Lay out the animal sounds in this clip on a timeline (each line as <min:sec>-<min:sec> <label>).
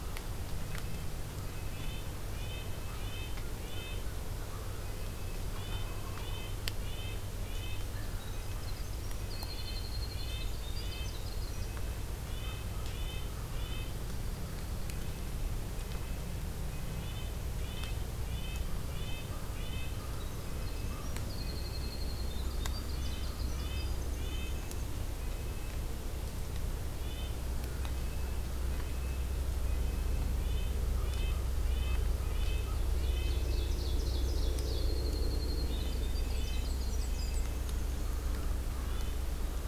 0:00.6-0:04.2 Red-breasted Nuthatch (Sitta canadensis)
0:02.4-0:04.8 American Crow (Corvus brachyrhynchos)
0:05.4-0:06.7 Wild Turkey (Meleagris gallopavo)
0:05.4-0:07.8 Red-breasted Nuthatch (Sitta canadensis)
0:07.9-0:08.9 American Crow (Corvus brachyrhynchos)
0:07.9-0:11.7 Winter Wren (Troglodytes hiemalis)
0:09.4-0:11.3 Red-breasted Nuthatch (Sitta canadensis)
0:12.3-0:13.9 Red-breasted Nuthatch (Sitta canadensis)
0:14.8-0:20.0 Red-breasted Nuthatch (Sitta canadensis)
0:20.3-0:24.9 Winter Wren (Troglodytes hiemalis)
0:20.4-0:22.1 Red-breasted Nuthatch (Sitta canadensis)
0:22.3-0:23.7 American Crow (Corvus brachyrhynchos)
0:22.9-0:25.8 Red-breasted Nuthatch (Sitta canadensis)
0:26.9-0:27.4 Red-breasted Nuthatch (Sitta canadensis)
0:27.8-0:33.4 Red-breasted Nuthatch (Sitta canadensis)
0:30.8-0:32.8 American Crow (Corvus brachyrhynchos)
0:32.3-0:34.9 Ovenbird (Seiurus aurocapilla)
0:34.5-0:38.3 Winter Wren (Troglodytes hiemalis)
0:35.5-0:37.7 Red-breasted Nuthatch (Sitta canadensis)
0:35.8-0:37.5 Black-and-white Warbler (Mniotilta varia)
0:37.5-0:39.7 American Crow (Corvus brachyrhynchos)
0:38.8-0:39.3 Red-breasted Nuthatch (Sitta canadensis)